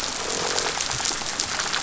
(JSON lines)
{"label": "biophony", "recorder": "SoundTrap 500"}
{"label": "biophony, rattle", "recorder": "SoundTrap 500"}